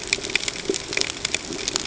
{"label": "ambient", "recorder": "HydroMoth"}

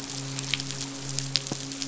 {"label": "biophony, midshipman", "recorder": "SoundTrap 500"}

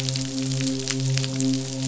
{"label": "biophony, midshipman", "recorder": "SoundTrap 500"}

